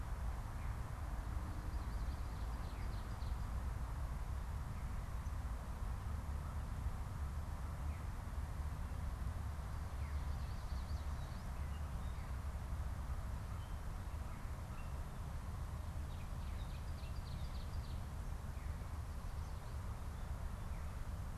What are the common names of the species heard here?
Ovenbird, Yellow Warbler, American Crow, Veery